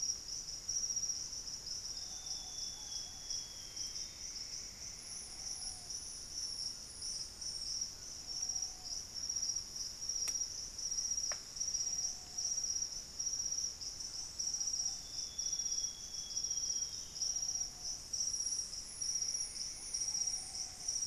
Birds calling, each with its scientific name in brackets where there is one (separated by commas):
White-throated Toucan (Ramphastos tucanus), Amazonian Grosbeak (Cyanoloxia rothschildii), Ruddy Pigeon (Patagioenas subvinacea), Plumbeous Antbird (Myrmelastes hyperythrus), Black-faced Antthrush (Formicarius analis)